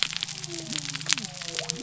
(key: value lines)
label: biophony
recorder: SoundTrap 300